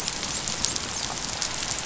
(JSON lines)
{"label": "biophony, dolphin", "recorder": "SoundTrap 500"}